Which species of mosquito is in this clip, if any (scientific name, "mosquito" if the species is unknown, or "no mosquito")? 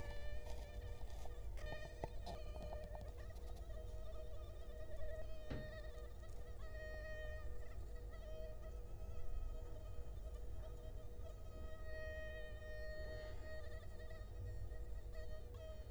Culex quinquefasciatus